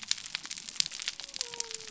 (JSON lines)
{"label": "biophony", "recorder": "SoundTrap 300"}